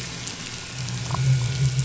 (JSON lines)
{"label": "anthrophony, boat engine", "recorder": "SoundTrap 500"}